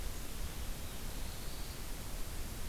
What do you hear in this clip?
Black-throated Blue Warbler